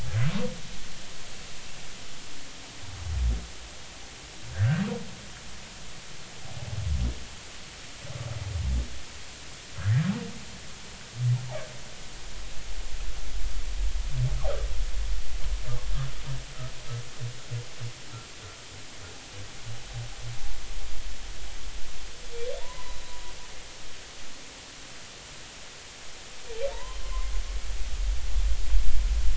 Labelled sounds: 4.5	4.8	humpback whale, 1.4 to 1.9 kHz
9.7	10.1	humpback whale, 1.3 to 1.8 kHz
22.6	23.2	humpback whale, 0.86 to 4.0 kHz
26.7	27.3	humpback whale, 0.86 to 2.1 kHz

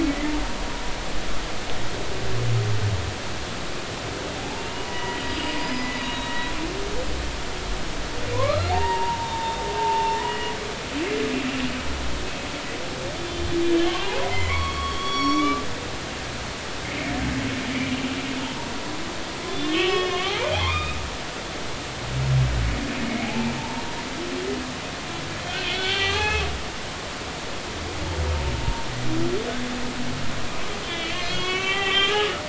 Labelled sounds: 0.1	0.3	humpback whale, 1.9 to 2.1 kHz
4.4	6.5	humpback whale, 0.80 to 5.1 kHz
8.3	10.5	humpback whale, 0.80 to 4.3 kHz
13.2	13.4	humpback whale, 3.4 to 3.6 kHz
13.8	15.6	humpback whale, 0.80 to 5.7 kHz
17.7	18.7	humpback whale, 0.83 to 2.4 kHz
19.5	21.0	humpback whale, 0.80 to 5.3 kHz
23.2	23.9	humpback whale, 0.80 to 1.0 kHz
25.5	26.4	humpback whale, 0.80 to 3.7 kHz
30.8	32.4	humpback whale, 1.0 to 3.7 kHz

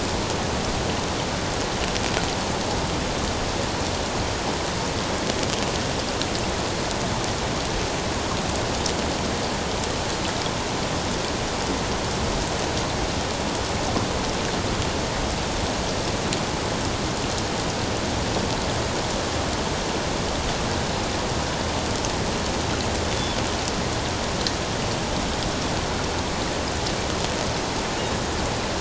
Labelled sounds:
23.1	23.4	killer whale, 3.4 to 3.5 kHz

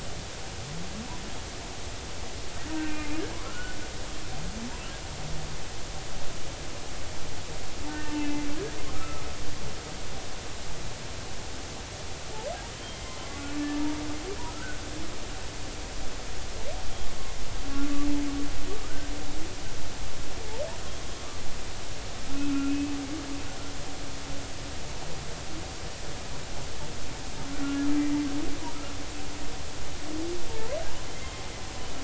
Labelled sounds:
2.8	3.8	humpback whale, 1.2 to 2.7 kHz
7.9	8.4	humpback whale, 1.8 to 2.8 kHz
8.9	9.2	humpback whale, 1.2 to 1.4 kHz
12.7	13.4	humpback whale, 0.99 to 3.2 kHz
14.5	14.8	humpback whale, 1.2 to 1.6 kHz
22.3	22.9	humpback whale, 1.3 to 2.6 kHz
27.6	27.9	humpback whale, 1.3 to 1.4 kHz
30.5	30.8	humpback whale, 0.86 to 1.1 kHz

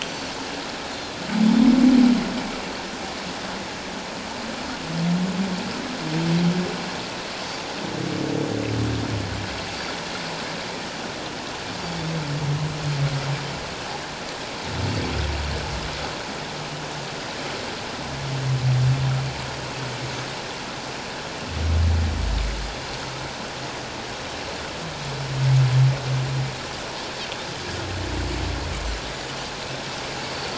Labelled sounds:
30.3	30.5	Pacific white-sided dolphin, 4.4 to 4.6 kHz

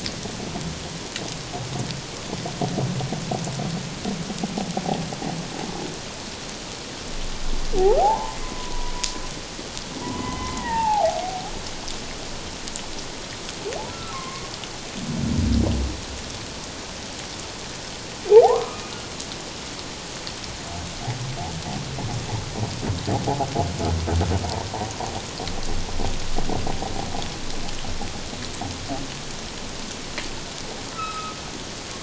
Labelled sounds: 8.0	8.9	humpback whale, 0.78 to 1.1 kHz
10.0	11.2	humpback whale, 0.78 to 2.1 kHz
13.9	14.5	humpback whale, 1.0 to 2.3 kHz
18.4	18.8	humpback whale, 0.78 to 1.3 kHz
30.9	31.4	humpback whale, 1.2 to 5.3 kHz

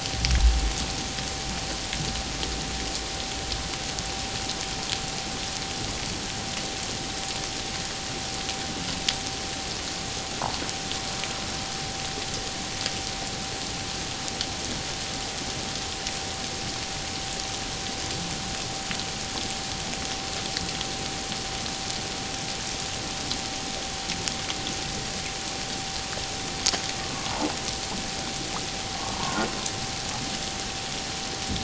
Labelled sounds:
29.0	29.4	humpback whale, 0.88 to 1.2 kHz

